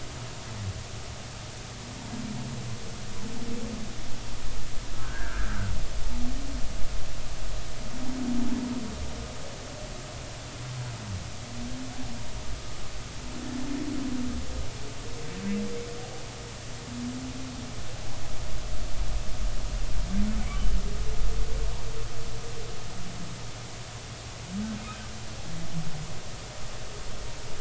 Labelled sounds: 5.0	5.5	humpback whale, 1.3 to 1.8 kHz

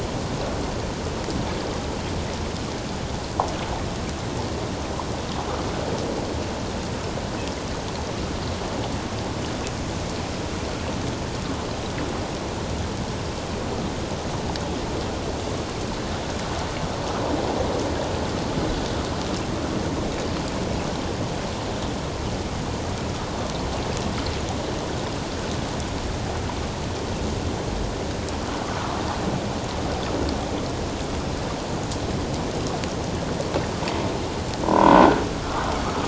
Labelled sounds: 34.6	35.2	croaking sound likely from a nearby submerged object, 0.88 to 1.7 kHz

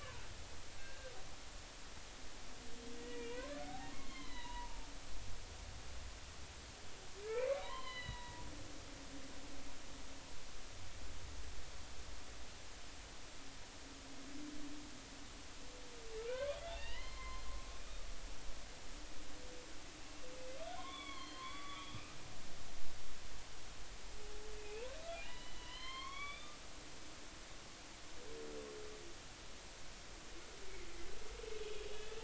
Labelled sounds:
0.7	1.1	humpback whale, 1.5 to 1.7 kHz
3.0	4.9	humpback whale, 0.80 to 4.2 kHz
7.6	8.5	humpback whale, 0.90 to 4.2 kHz
16.2	17.4	humpback whale, 0.80 to 4.3 kHz
20.8	22.2	humpback whale, 0.93 to 4.6 kHz
24.6	24.9	humpback whale, 2.4 to 2.8 kHz
25.2	26.6	humpback whale, 0.93 to 4.8 kHz
31.9	32.2	humpback whale, 3.3 to 3.6 kHz

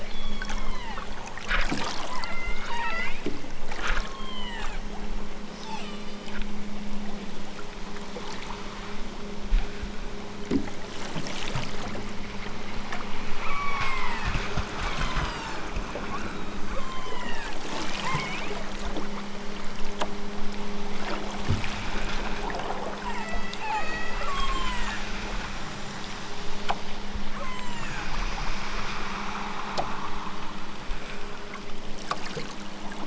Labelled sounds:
0.0	1.1	killer whale, southern Alaska resident, 0.41 to 8.0 kHz
2.1	3.2	killer whale, southern Alaska resident, 0.55 to 8.0 kHz
4.0	4.8	killer whale, southern Alaska resident, 0.69 to 8.0 kHz
5.5	6.4	killer whale, southern Alaska resident, 0.51 to 8.0 kHz
13.3	14.3	killer whale, southern Alaska resident, 0.69 to 8.0 kHz
14.7	17.5	killer whale, southern Alaska resident, 0.41 to 8.0 kHz
18.0	18.5	killer whale, southern Alaska resident, 0.41 to 2.8 kHz
23.1	25.1	killer whale, southern Alaska resident, 0.64 to 8.0 kHz
27.3	28.2	killer whale, southern Alaska resident, 0.55 to 8.0 kHz

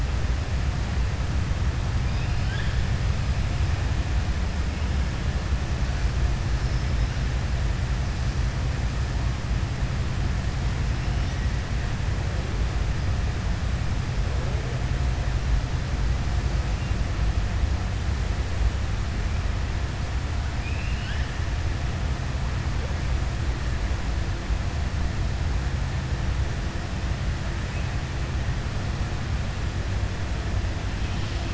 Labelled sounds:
2.0	2.8	killer whale, southern resident, 1.5 to 5.2 kHz
20.5	21.3	killer whale, southern resident, 1.5 to 5.2 kHz

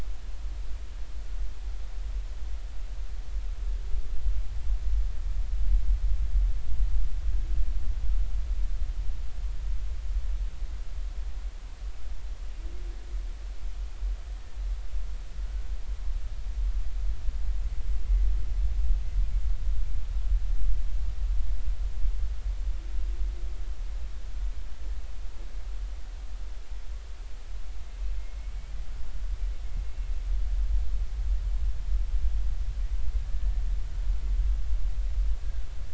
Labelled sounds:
28.4	28.7	humpback whale, 2.1 to 2.3 kHz
33.5	33.7	humpback whale, 1.8 to 1.9 kHz
35.4	35.7	humpback whale, 1.4 to 1.7 kHz

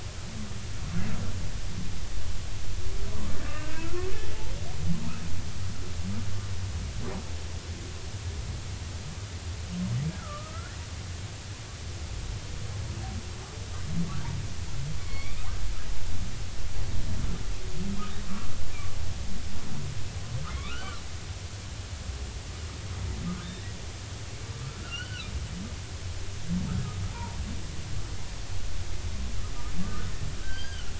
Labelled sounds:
3.4	3.8	humpback whale, 1.5 to 2.8 kHz
10.2	10.8	humpback whale, 1.1 to 1.5 kHz
15.0	15.5	humpback whale, 1.0 to 3.5 kHz
20.5	21.0	humpback whale, 1.0 to 3.1 kHz
23.4	23.7	humpback whale, 3.4 to 3.8 kHz
24.7	25.3	humpback whale, 1.2 to 3.2 kHz
27.1	27.4	humpback whale, 0.80 to 1.1 kHz
30.4	30.9	humpback whale, 1.3 to 4.9 kHz

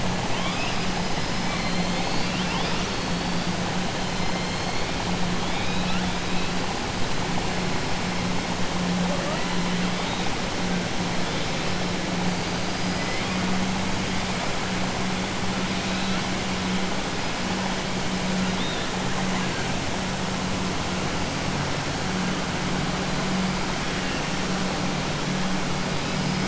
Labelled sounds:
5.4	6.0	killer whale, 2.2 to 4.0 kHz

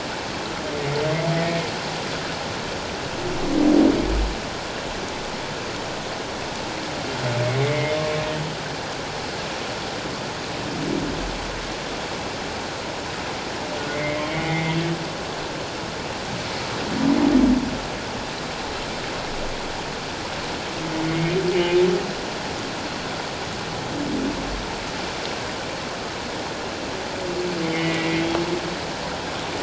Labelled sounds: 1.4	1.6	humpback whale, 1.8 to 1.9 kHz
7.6	8.0	humpback whale, 1.9 to 2.3 kHz
13.9	14.8	humpback whale, 1.9 to 2.3 kHz
21.0	21.3	humpback whale, 2.1 to 2.2 kHz
27.6	28.2	humpback whale, 1.9 to 2.3 kHz

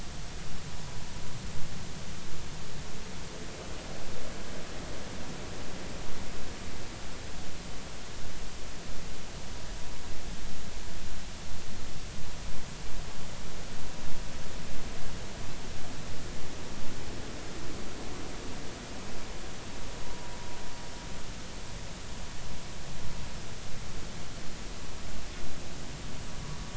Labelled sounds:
20.0	20.3	vessel noise, 0.90 to 1.0 kHz

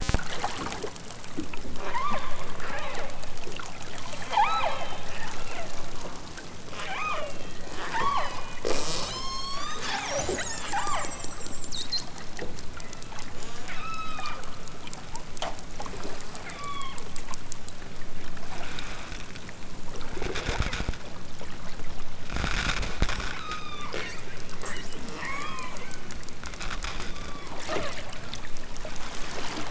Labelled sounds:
1.8	2.2	killer whale, southern Alaska resident, 0.37 to 6.9 kHz
2.6	3.2	killer whale, southern Alaska resident, 0.51 to 4.4 kHz
4.3	4.8	killer whale, southern Alaska resident, 0.32 to 5.0 kHz
5.1	5.7	killer whale, southern Alaska resident, 0.32 to 4.6 kHz
6.7	7.3	killer whale, southern Alaska resident, 0.28 to 6.7 kHz
7.7	11.1	killer whale, southern Alaska resident, 0.18 to 8.0 kHz
12.8	14.4	killer whale, southern Alaska resident, 0.51 to 8.0 kHz
16.3	17.0	killer whale, southern Alaska resident, 0.46 to 6.3 kHz
23.4	23.9	killer whale, southern Alaska resident, 0.78 to 6.8 kHz
25.1	26.2	killer whale, southern Alaska resident, 0.55 to 8.0 kHz
27.0	28.1	killer whale, southern Alaska resident, 0.41 to 7.4 kHz

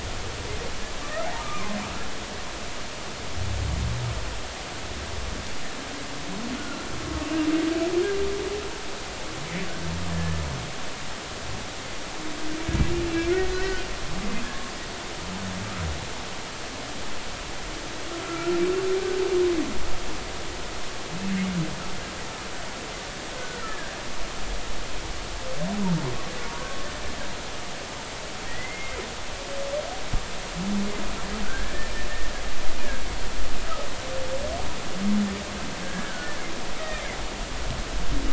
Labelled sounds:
1.0	1.8	humpback whale, 0.99 to 1.4 kHz
6.6	6.8	humpback whale, 1.3 to 1.5 kHz
10.1	10.4	humpback whale, 1.7 to 1.8 kHz
13.5	13.9	humpback whale, 1.4 to 1.6 kHz
18.2	18.5	humpback whale, 1.3 to 1.5 kHz
23.6	24.0	humpback whale, 1.5 to 1.9 kHz
28.5	29.0	humpback whale, 1.8 to 2.2 kHz
31.4	31.9	humpback whale, 1.4 to 1.9 kHz
35.8	36.3	humpback whale, 1.4 to 1.7 kHz

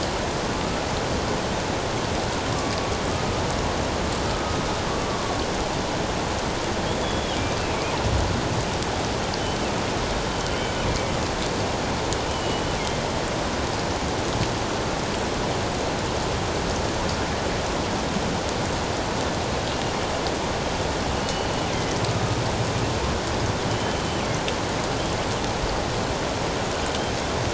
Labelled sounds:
6.8	7.4	killer whale, northern resident, G clan, GG subclan, 3.1 to 3.5 kHz
12.3	12.6	killer whale, northern resident, G clan, GG subclan, 2.9 to 3.1 kHz
21.2	21.5	killer whale, northern resident, G clan, GG subclan, 2.9 to 3.1 kHz
23.7	24.0	killer whale, northern resident, G clan, GG subclan, 3.0 to 3.1 kHz

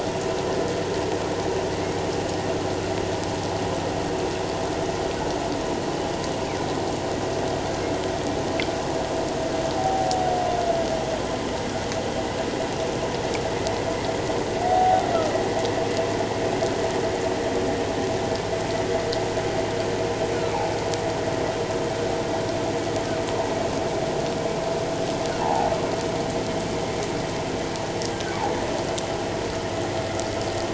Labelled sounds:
9.8	10.2	humpback whale, 0.78 to 0.84 kHz
14.6	15.0	humpback whale, 0.78 to 0.81 kHz
25.4	25.7	humpback whale, 0.78 to 1.0 kHz

